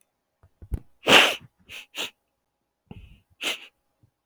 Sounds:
Sniff